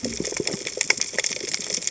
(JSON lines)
{"label": "biophony, cascading saw", "recorder": "HydroMoth"}